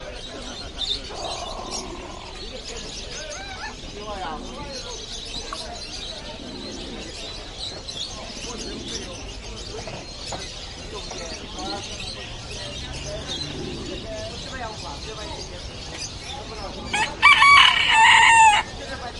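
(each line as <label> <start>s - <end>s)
A bird chirps repeatedly in an excited and shrill manner. 0.0s - 19.2s
People talk excitedly in the distance. 0.0s - 19.2s
A pigeon coos. 0.9s - 2.0s
A cock crows. 16.9s - 18.7s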